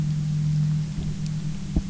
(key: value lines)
label: anthrophony, boat engine
recorder: SoundTrap 300